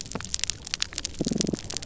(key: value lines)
label: biophony
recorder: SoundTrap 300